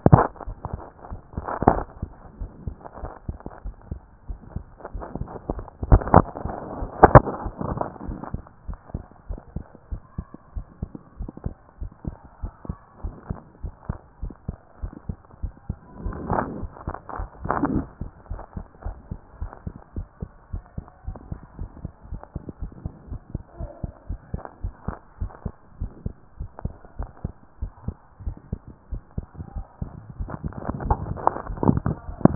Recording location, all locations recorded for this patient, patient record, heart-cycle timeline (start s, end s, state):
pulmonary valve (PV)
aortic valve (AV)+pulmonary valve (PV)+tricuspid valve (TV)+mitral valve (MV)
#Age: Child
#Sex: Female
#Height: 165.0 cm
#Weight: 46.6 kg
#Pregnancy status: False
#Murmur: Absent
#Murmur locations: nan
#Most audible location: nan
#Systolic murmur timing: nan
#Systolic murmur shape: nan
#Systolic murmur grading: nan
#Systolic murmur pitch: nan
#Systolic murmur quality: nan
#Diastolic murmur timing: nan
#Diastolic murmur shape: nan
#Diastolic murmur grading: nan
#Diastolic murmur pitch: nan
#Diastolic murmur quality: nan
#Outcome: Normal
#Campaign: 2014 screening campaign
0.00	8.78	unannotated
8.78	8.94	systole
8.94	9.02	S2
9.02	9.28	diastole
9.28	9.40	S1
9.40	9.54	systole
9.54	9.64	S2
9.64	9.90	diastole
9.90	10.00	S1
10.00	10.16	systole
10.16	10.26	S2
10.26	10.54	diastole
10.54	10.66	S1
10.66	10.80	systole
10.80	10.90	S2
10.90	11.18	diastole
11.18	11.30	S1
11.30	11.44	systole
11.44	11.54	S2
11.54	11.80	diastole
11.80	11.90	S1
11.90	12.06	systole
12.06	12.16	S2
12.16	12.42	diastole
12.42	12.52	S1
12.52	12.68	systole
12.68	12.76	S2
12.76	13.02	diastole
13.02	13.14	S1
13.14	13.28	systole
13.28	13.38	S2
13.38	13.62	diastole
13.62	13.74	S1
13.74	13.88	systole
13.88	13.98	S2
13.98	14.22	diastole
14.22	14.34	S1
14.34	14.48	systole
14.48	14.56	S2
14.56	14.82	diastole
14.82	14.92	S1
14.92	15.08	systole
15.08	15.16	S2
15.16	15.42	diastole
15.42	15.54	S1
15.54	15.68	systole
15.68	15.78	S2
15.78	16.04	diastole
16.04	16.16	S1
16.16	16.28	systole
16.28	16.46	S2
16.46	16.62	diastole
16.62	16.72	S1
16.72	16.86	systole
16.86	16.96	S2
16.96	17.20	diastole
17.20	17.30	S1
17.30	17.42	systole
17.42	17.52	S2
17.52	17.66	diastole
17.66	17.86	S1
17.86	18.02	systole
18.02	18.10	S2
18.10	18.30	diastole
18.30	18.42	S1
18.42	18.56	systole
18.56	18.64	S2
18.64	18.84	diastole
18.84	18.96	S1
18.96	19.10	systole
19.10	19.20	S2
19.20	19.40	diastole
19.40	19.52	S1
19.52	19.66	systole
19.66	19.74	S2
19.74	19.96	diastole
19.96	20.06	S1
20.06	20.20	systole
20.20	20.30	S2
20.30	20.52	diastole
20.52	20.64	S1
20.64	20.76	systole
20.76	20.86	S2
20.86	21.06	diastole
21.06	21.18	S1
21.18	21.30	systole
21.30	21.40	S2
21.40	21.58	diastole
21.58	21.70	S1
21.70	21.82	systole
21.82	21.92	S2
21.92	22.10	diastole
22.10	22.22	S1
22.22	22.34	systole
22.34	22.42	S2
22.42	22.60	diastole
22.60	22.72	S1
22.72	22.84	systole
22.84	22.92	S2
22.92	23.10	diastole
23.10	23.20	S1
23.20	23.34	systole
23.34	23.42	S2
23.42	23.58	diastole
23.58	23.70	S1
23.70	23.82	systole
23.82	23.92	S2
23.92	24.08	diastole
24.08	24.20	S1
24.20	24.32	systole
24.32	24.42	S2
24.42	24.62	diastole
24.62	24.74	S1
24.74	24.86	systole
24.86	24.96	S2
24.96	25.20	diastole
25.20	25.32	S1
25.32	25.44	systole
25.44	25.52	S2
25.52	25.80	diastole
25.80	25.92	S1
25.92	26.04	systole
26.04	26.14	S2
26.14	26.38	diastole
26.38	26.50	S1
26.50	26.64	systole
26.64	26.74	S2
26.74	26.98	diastole
26.98	27.10	S1
27.10	27.24	systole
27.24	27.32	S2
27.32	27.60	diastole
27.60	27.72	S1
27.72	27.86	systole
27.86	27.96	S2
27.96	28.24	diastole
28.24	28.36	S1
28.36	28.50	systole
28.50	28.60	S2
28.60	28.92	diastole
28.92	29.02	S1
29.02	29.16	systole
29.16	29.26	S2
29.26	29.54	diastole
29.54	29.66	S1
29.66	29.80	systole
29.80	29.90	S2
29.90	30.18	diastole
30.18	30.24	S1
30.24	32.35	unannotated